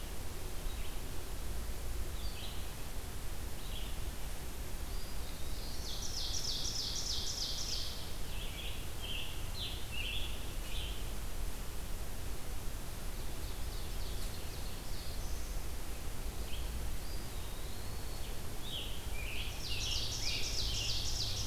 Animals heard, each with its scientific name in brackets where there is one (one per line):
Eastern Wood-Pewee (Contopus virens)
Scarlet Tanager (Piranga olivacea)
Red-eyed Vireo (Vireo olivaceus)
Ovenbird (Seiurus aurocapilla)
Black-throated Blue Warbler (Setophaga caerulescens)